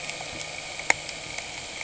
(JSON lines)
{"label": "anthrophony, boat engine", "recorder": "HydroMoth"}